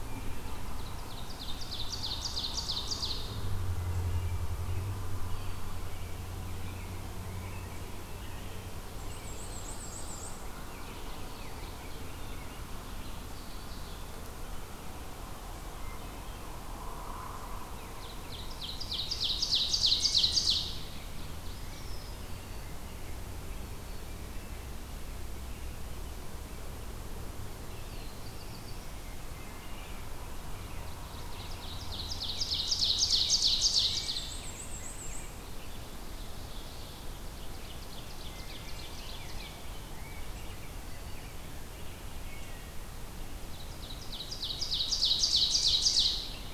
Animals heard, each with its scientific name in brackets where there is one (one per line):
Rose-breasted Grosbeak (Pheucticus ludovicianus)
Ovenbird (Seiurus aurocapilla)
Black-and-white Warbler (Mniotilta varia)
Wood Thrush (Hylocichla mustelina)
Black-throated Blue Warbler (Setophaga caerulescens)
Black-capped Chickadee (Poecile atricapillus)